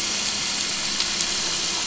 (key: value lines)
label: anthrophony, boat engine
recorder: SoundTrap 500